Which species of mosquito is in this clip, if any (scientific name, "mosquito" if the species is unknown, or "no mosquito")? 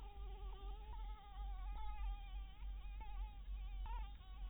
Anopheles dirus